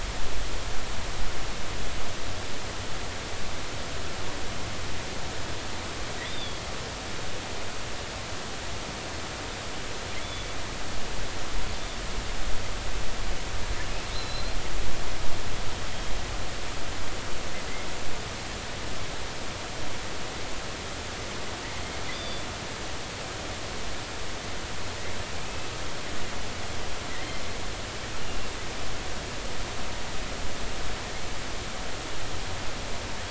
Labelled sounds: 6.2	6.7	killer whale, offshore, 3.3 to 4.5 kHz
10.2	10.5	killer whale, offshore, 3.3 to 3.5 kHz
14.1	14.6	killer whale, offshore, 3.9 to 4.3 kHz
22.1	22.4	killer whale, offshore, 3.3 to 4.9 kHz
25.3	25.7	killer whale, offshore, 2.3 to 2.7 kHz
27.1	27.4	killer whale, offshore, 1.8 to 2.2 kHz
28.2	28.5	killer whale, offshore, 2.7 to 2.9 kHz

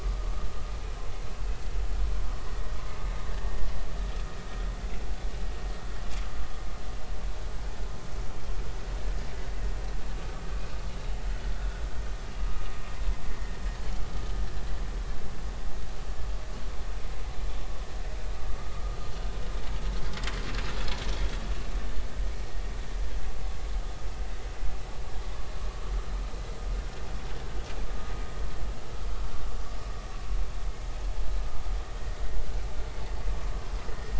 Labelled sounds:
11.5	11.8	vessel noise, 1.3 to 1.5 kHz
13.3	13.6	vessel noise, 1.8 to 2.1 kHz
18.6	18.8	vessel noise, 1.1 to 1.2 kHz

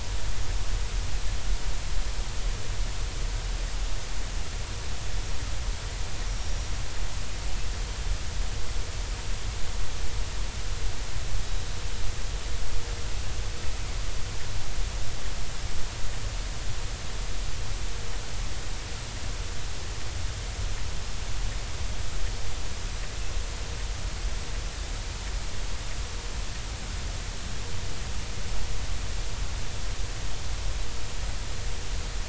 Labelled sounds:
6.3	6.7	killer whale, Bigg's (transient), 5.5 to 5.8 kHz

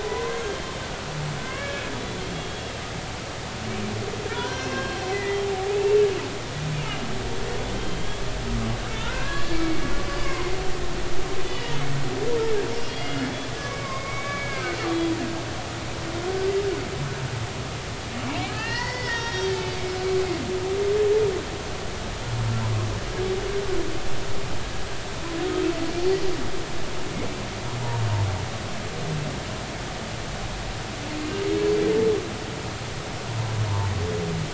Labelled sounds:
0.0	0.5	humpback whale, 0.93 to 2.1 kHz
1.4	2.7	humpback whale, 1.5 to 3.6 kHz
4.3	6.1	humpback whale, 0.80 to 6.4 kHz
7.7	10.6	humpback whale, 0.86 to 3.5 kHz
11.4	11.8	humpback whale, 1.8 to 3.0 kHz
13.0	14.8	humpback whale, 0.99 to 5.0 kHz
18.5	19.7	humpback whale, 0.83 to 5.7 kHz

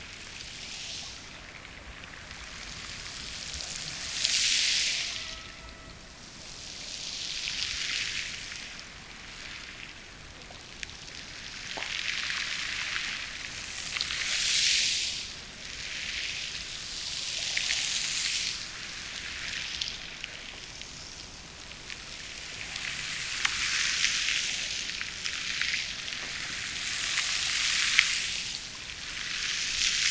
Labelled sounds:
4.8	6.3	killer whale, Bigg's (transient), Gulf of Alaska transient, 0.37 to 2.1 kHz

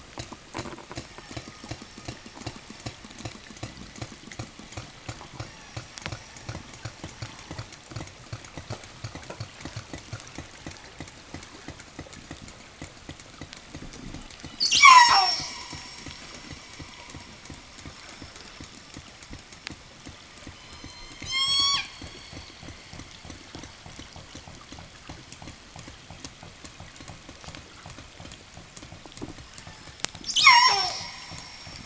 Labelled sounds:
0.7	7.1	killer whale, southern resident, 0.70 to 6.3 kHz
14.3	15.9	killer whale, southern resident, 0 to 8.0 kHz
20.4	22.1	killer whale, southern resident, 0.56 to 8.0 kHz
29.9	31.4	killer whale, southern resident, 0.05 to 8.0 kHz

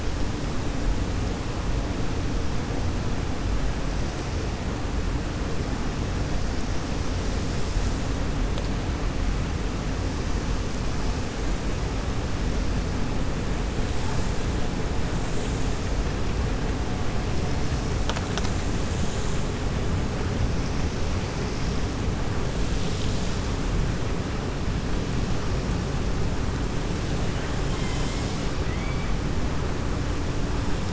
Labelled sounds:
28.6	29.1	killer whale, 1.3 to 3.3 kHz

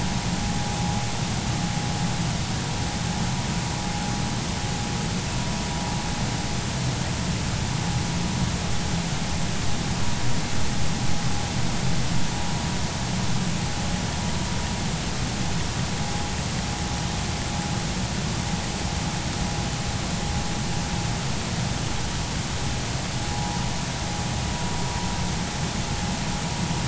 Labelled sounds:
23.3	23.6	vessel noise, 0.80 to 0.99 kHz

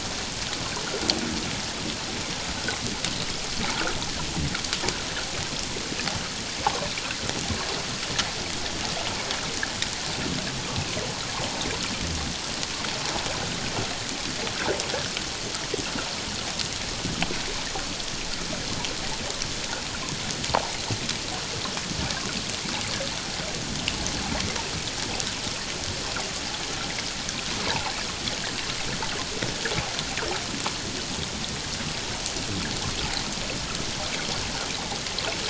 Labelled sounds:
27.7	27.9	water noise, 0.78 to 1.1 kHz

